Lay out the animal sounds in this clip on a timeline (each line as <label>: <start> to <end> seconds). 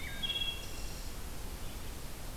Wood Thrush (Hylocichla mustelina): 0.0 to 1.2 seconds